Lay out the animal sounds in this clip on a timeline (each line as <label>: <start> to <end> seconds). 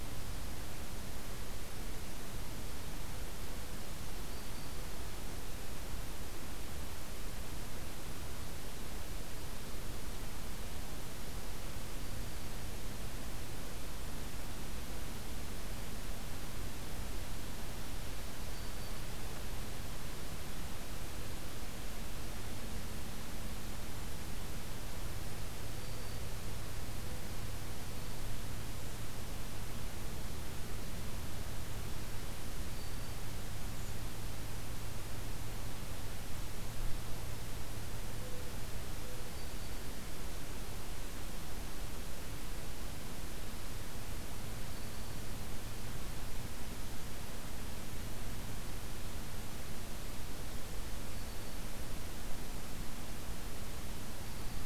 Black-throated Green Warbler (Setophaga virens): 4.2 to 4.8 seconds
Black-throated Green Warbler (Setophaga virens): 12.0 to 12.5 seconds
Black-throated Green Warbler (Setophaga virens): 18.5 to 19.0 seconds
Black-throated Green Warbler (Setophaga virens): 25.7 to 26.2 seconds
Black-throated Green Warbler (Setophaga virens): 32.7 to 33.2 seconds
Mourning Dove (Zenaida macroura): 38.1 to 39.5 seconds
Black-throated Green Warbler (Setophaga virens): 39.3 to 40.0 seconds
Black-throated Green Warbler (Setophaga virens): 44.7 to 45.2 seconds
Black-throated Green Warbler (Setophaga virens): 51.0 to 51.7 seconds
Black-throated Green Warbler (Setophaga virens): 54.2 to 54.7 seconds